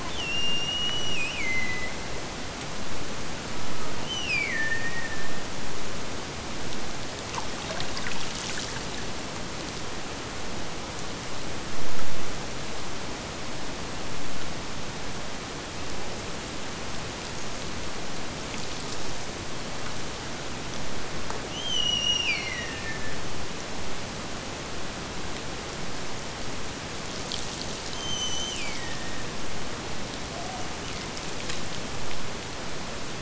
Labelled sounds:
0.0	2.0	killer whale, Bigg's (transient), Gulf of Alaska transient, 1.9 to 8.0 kHz
3.9	5.4	killer whale, Bigg's (transient), Gulf of Alaska transient, 1.7 to 6.3 kHz
21.4	23.3	killer whale, Bigg's (transient), Gulf of Alaska transient, 1.6 to 8.0 kHz
27.9	29.3	killer whale, Bigg's (transient), Gulf of Alaska transient, 1.6 to 6.4 kHz

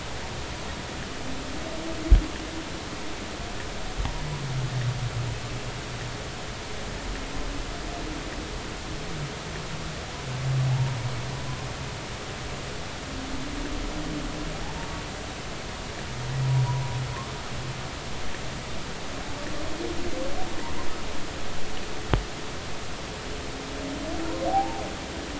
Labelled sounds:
10.7	11.0	humpback whale, 0.80 to 0.99 kHz
24.5	24.8	humpback whale, 0.80 to 0.96 kHz

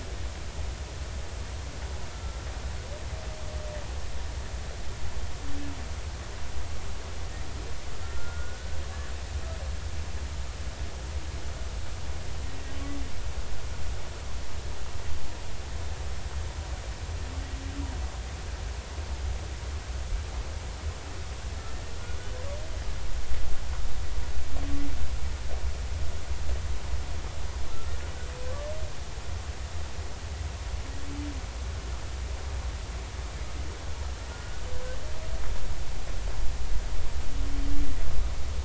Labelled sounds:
2.1	2.4	humpback whale, 1.3 to 1.4 kHz
8.0	8.8	humpback whale, 1.3 to 1.6 kHz
34.3	34.6	humpback whale, 1.4 to 1.5 kHz

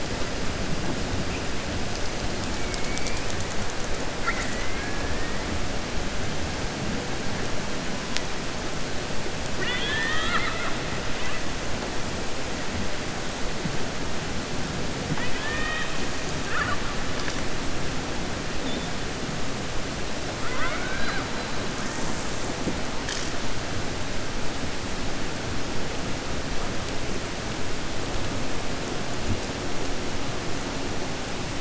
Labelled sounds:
4.1	5.0	killer whale, 1.1 to 2.9 kHz
9.5	10.8	killer whale, 0.94 to 4.3 kHz
20.4	21.3	killer whale, 0.54 to 4.9 kHz

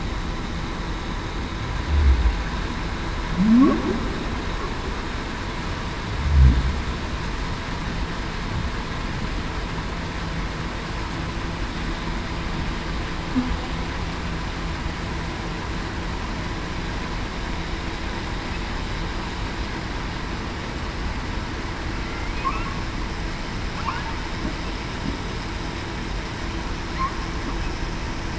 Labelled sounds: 3.4	3.8	humpback whale, 0.19 to 0.40 kHz

